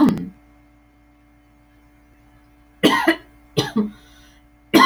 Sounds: Laughter